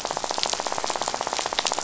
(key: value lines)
label: biophony, rattle
recorder: SoundTrap 500